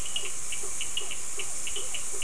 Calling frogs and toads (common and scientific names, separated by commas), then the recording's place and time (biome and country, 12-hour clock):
blacksmith tree frog (Boana faber), Physalaemus cuvieri, Cochran's lime tree frog (Sphaenorhynchus surdus)
Atlantic Forest, Brazil, 7:00pm